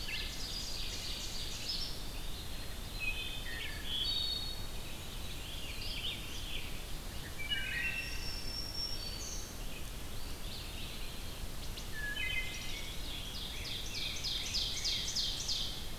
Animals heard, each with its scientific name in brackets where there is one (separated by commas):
Rose-breasted Grosbeak (Pheucticus ludovicianus), Ovenbird (Seiurus aurocapilla), Wood Thrush (Hylocichla mustelina), Red-eyed Vireo (Vireo olivaceus), Eastern Wood-Pewee (Contopus virens), Veery (Catharus fuscescens), Black-throated Green Warbler (Setophaga virens)